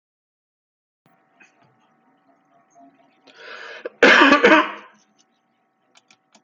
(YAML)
expert_labels:
- quality: good
  cough_type: dry
  dyspnea: false
  wheezing: false
  stridor: false
  choking: false
  congestion: false
  nothing: true
  diagnosis: upper respiratory tract infection
  severity: mild
age: 50
gender: male
respiratory_condition: false
fever_muscle_pain: false
status: COVID-19